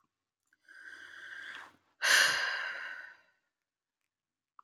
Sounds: Sigh